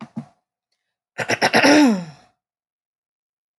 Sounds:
Throat clearing